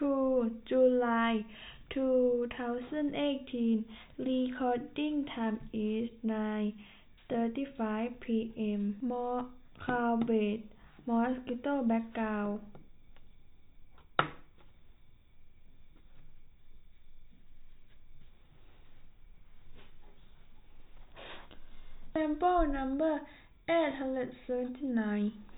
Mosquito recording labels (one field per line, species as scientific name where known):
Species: no mosquito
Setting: cup